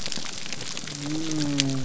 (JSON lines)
{"label": "biophony", "recorder": "SoundTrap 300"}